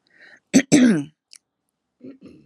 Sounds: Throat clearing